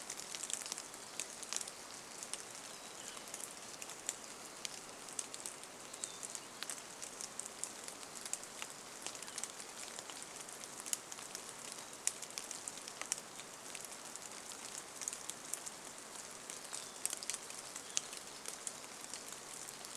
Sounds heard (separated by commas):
Hermit Thrush song, rain